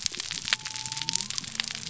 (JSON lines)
{"label": "biophony", "recorder": "SoundTrap 300"}